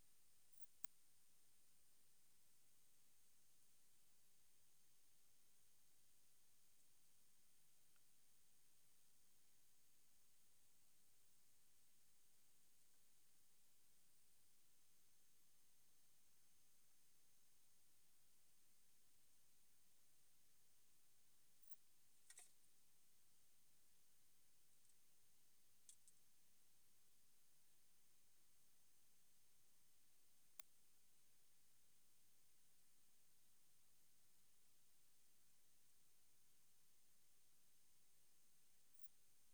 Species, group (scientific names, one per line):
Poecilimon tessellatus
Orthoptera